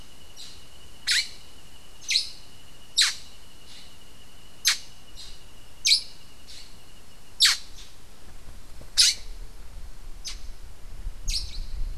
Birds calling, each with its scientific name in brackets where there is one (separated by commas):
Black-headed Saltator (Saltator atriceps)